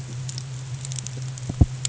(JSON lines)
{"label": "anthrophony, boat engine", "recorder": "HydroMoth"}